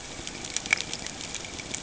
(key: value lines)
label: ambient
recorder: HydroMoth